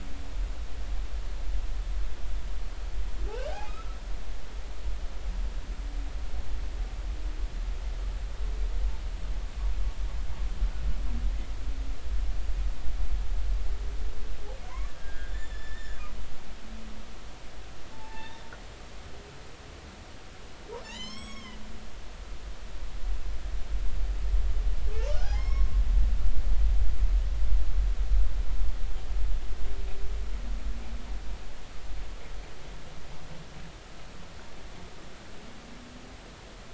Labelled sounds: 3.3	4.0	humpback whale, 1.2 to 3.4 kHz
14.7	16.0	humpback whale, 0.93 to 5.5 kHz
17.9	18.4	humpback whale, 0.80 to 1.9 kHz
20.8	21.6	humpback whale, 0.83 to 7.9 kHz
25.0	25.7	humpback whale, 0.99 to 5.6 kHz

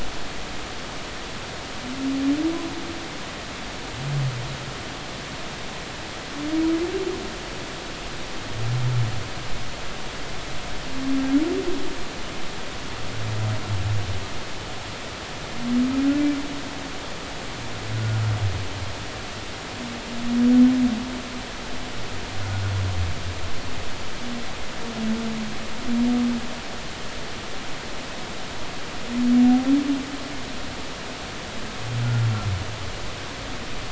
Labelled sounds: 18.0	18.2	humpback whale, 1.4 to 1.5 kHz

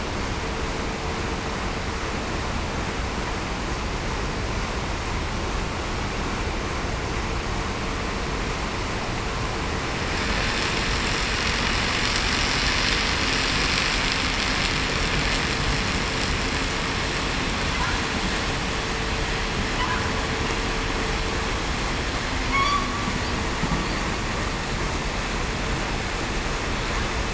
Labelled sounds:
22.5	22.9	humpback whale, 1.1 to 1.2 kHz

